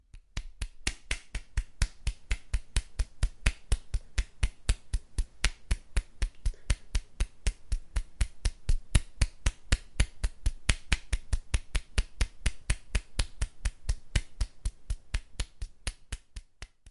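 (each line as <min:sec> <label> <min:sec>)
0:00.0 A person clapping rhythmically and repeatedly. 0:16.9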